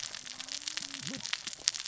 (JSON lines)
{"label": "biophony, cascading saw", "recorder": "SoundTrap 600 or HydroMoth"}